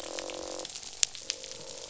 {"label": "biophony, croak", "recorder": "SoundTrap 500"}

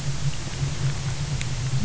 {"label": "anthrophony, boat engine", "recorder": "SoundTrap 300"}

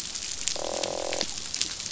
{"label": "biophony, croak", "recorder": "SoundTrap 500"}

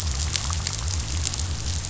{"label": "biophony", "recorder": "SoundTrap 500"}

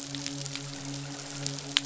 {"label": "biophony, midshipman", "recorder": "SoundTrap 500"}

